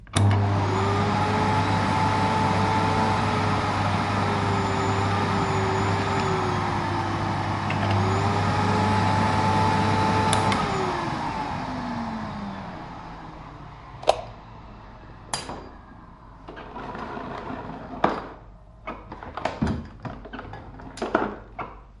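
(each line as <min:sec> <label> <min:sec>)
0:00.1 A vacuum cleaner is switched on, runs, and then is switched off at a distance. 0:13.2
0:14.0 A power cable is being unplugged nearby. 0:14.5
0:15.3 A plug is dropped on the floor nearby. 0:15.9
0:16.4 A power cable is being rolled up until the plug touches the nearby housing. 0:18.5
0:18.8 A vacuum cleaner being moved away nearby. 0:22.0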